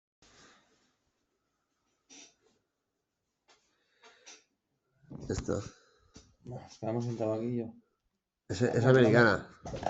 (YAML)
expert_labels:
- quality: no cough present
  cough_type: unknown
  dyspnea: false
  wheezing: false
  stridor: false
  choking: false
  congestion: false
  nothing: true
  diagnosis: healthy cough
  severity: unknown
age: 34
gender: male
respiratory_condition: true
fever_muscle_pain: true
status: COVID-19